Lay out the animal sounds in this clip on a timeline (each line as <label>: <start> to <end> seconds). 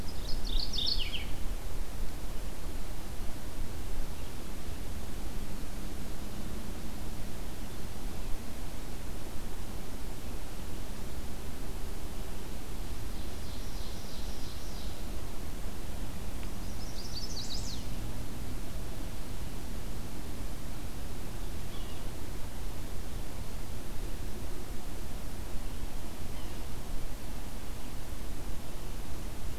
Mourning Warbler (Geothlypis philadelphia): 0.0 to 1.5 seconds
Ovenbird (Seiurus aurocapilla): 13.3 to 15.2 seconds
Chestnut-sided Warbler (Setophaga pensylvanica): 16.4 to 18.1 seconds
Yellow-bellied Sapsucker (Sphyrapicus varius): 21.6 to 22.1 seconds
Yellow-bellied Sapsucker (Sphyrapicus varius): 26.2 to 26.7 seconds